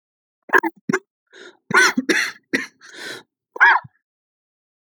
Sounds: Cough